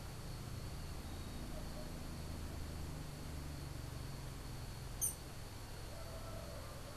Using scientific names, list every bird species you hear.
unidentified bird